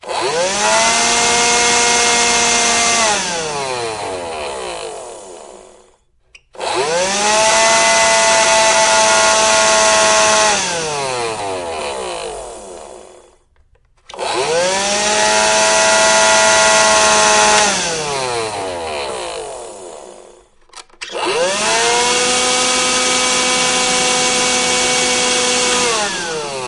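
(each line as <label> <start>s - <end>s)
Motor powering on and off. 0.0s - 5.3s
A motor powers on. 0.0s - 0.6s
Motor sounds. 0.6s - 2.7s
Motor powering off. 2.7s - 5.4s
Motor powering on. 6.3s - 7.4s
Motor powering on and off. 6.4s - 12.8s
Motor powering off. 10.5s - 13.1s
Motor powering on. 13.8s - 15.4s
Motor powering on and off. 13.9s - 20.3s
Motor powering off. 17.6s - 20.4s
Motor powering on. 20.8s - 22.4s
Motor powering on and off. 20.9s - 26.7s
Motor powering off. 25.6s - 26.7s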